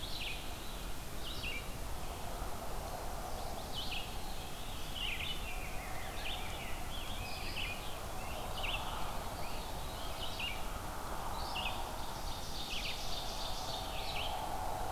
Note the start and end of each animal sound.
0.0s-1.2s: Veery (Catharus fuscescens)
0.0s-5.5s: Red-eyed Vireo (Vireo olivaceus)
2.9s-3.9s: Chestnut-sided Warbler (Setophaga pensylvanica)
4.0s-5.1s: Veery (Catharus fuscescens)
5.1s-8.5s: Rose-breasted Grosbeak (Pheucticus ludovicianus)
6.1s-14.9s: Red-eyed Vireo (Vireo olivaceus)
7.6s-10.5s: Scarlet Tanager (Piranga olivacea)
9.0s-10.8s: Veery (Catharus fuscescens)
11.8s-14.1s: Ovenbird (Seiurus aurocapilla)

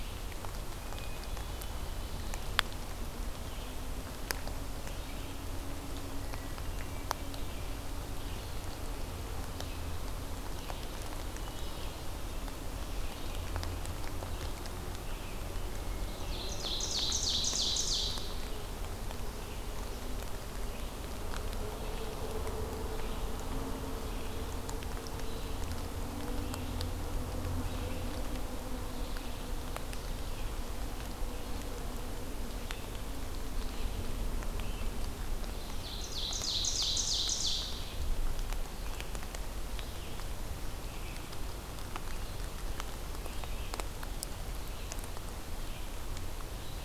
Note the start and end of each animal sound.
0.0s-24.7s: Red-eyed Vireo (Vireo olivaceus)
0.7s-2.3s: Hermit Thrush (Catharus guttatus)
6.3s-7.8s: Hermit Thrush (Catharus guttatus)
11.3s-12.4s: Hermit Thrush (Catharus guttatus)
15.9s-18.4s: Ovenbird (Seiurus aurocapilla)
25.1s-46.8s: Red-eyed Vireo (Vireo olivaceus)
35.4s-38.2s: Ovenbird (Seiurus aurocapilla)

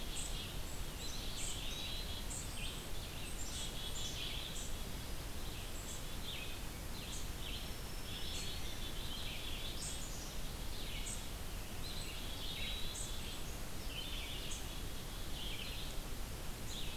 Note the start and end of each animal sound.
0.0s-14.7s: unknown mammal
0.0s-16.9s: Red-eyed Vireo (Vireo olivaceus)
0.7s-2.2s: Eastern Wood-Pewee (Contopus virens)
3.3s-4.5s: Black-capped Chickadee (Poecile atricapillus)
7.3s-9.3s: Black-throated Green Warbler (Setophaga virens)
8.4s-11.5s: Black-capped Chickadee (Poecile atricapillus)
11.5s-13.4s: Eastern Wood-Pewee (Contopus virens)

